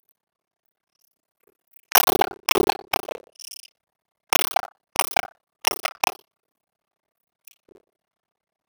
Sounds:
Cough